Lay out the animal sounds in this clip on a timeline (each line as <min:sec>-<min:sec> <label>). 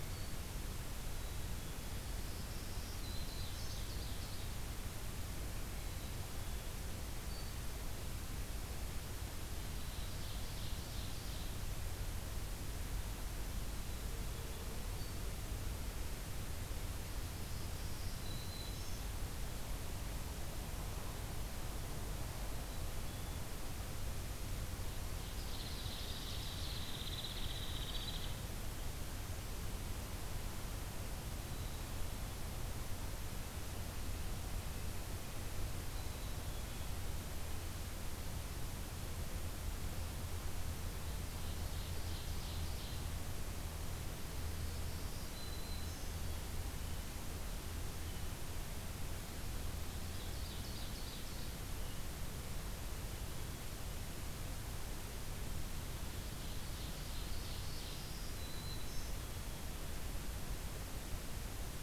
0:01.1-0:02.0 Black-capped Chickadee (Poecile atricapillus)
0:02.3-0:03.9 Black-throated Green Warbler (Setophaga virens)
0:02.9-0:04.4 Ovenbird (Seiurus aurocapilla)
0:05.6-0:06.8 Black-capped Chickadee (Poecile atricapillus)
0:07.0-0:07.7 Black-throated Green Warbler (Setophaga virens)
0:09.7-0:11.5 Ovenbird (Seiurus aurocapilla)
0:17.4-0:19.0 Black-throated Green Warbler (Setophaga virens)
0:22.5-0:23.5 Black-capped Chickadee (Poecile atricapillus)
0:25.4-0:26.8 Ovenbird (Seiurus aurocapilla)
0:25.5-0:28.4 Hairy Woodpecker (Dryobates villosus)
0:31.4-0:32.4 Black-capped Chickadee (Poecile atricapillus)
0:35.8-0:37.0 Black-capped Chickadee (Poecile atricapillus)
0:40.9-0:43.1 Ovenbird (Seiurus aurocapilla)
0:44.5-0:46.2 Black-throated Green Warbler (Setophaga virens)
0:50.0-0:51.5 Ovenbird (Seiurus aurocapilla)
0:55.9-0:58.0 Ovenbird (Seiurus aurocapilla)
0:57.6-0:59.1 Black-throated Green Warbler (Setophaga virens)